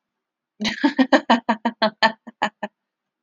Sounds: Laughter